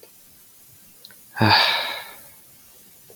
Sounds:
Sigh